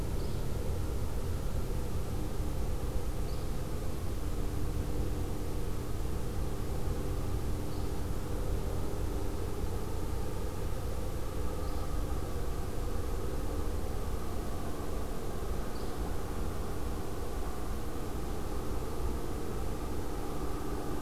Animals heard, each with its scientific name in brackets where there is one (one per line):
Yellow-bellied Flycatcher (Empidonax flaviventris)